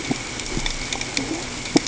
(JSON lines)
{"label": "ambient", "recorder": "HydroMoth"}